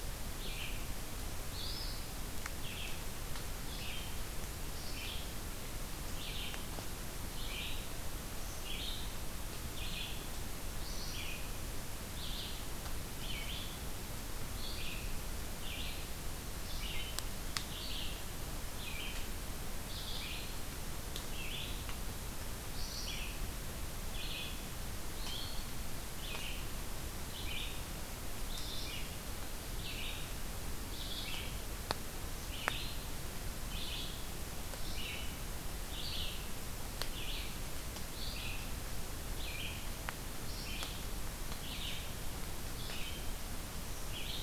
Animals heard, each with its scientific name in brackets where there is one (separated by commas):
Red-eyed Vireo (Vireo olivaceus)